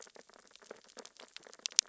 {"label": "biophony, sea urchins (Echinidae)", "recorder": "SoundTrap 600 or HydroMoth"}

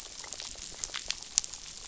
{"label": "biophony, damselfish", "recorder": "SoundTrap 500"}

